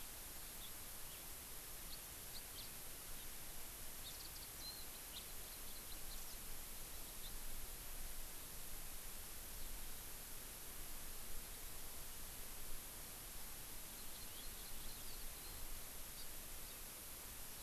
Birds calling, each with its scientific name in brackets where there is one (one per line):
Hawaii Amakihi (Chlorodrepanis virens)
House Finch (Haemorhous mexicanus)
Warbling White-eye (Zosterops japonicus)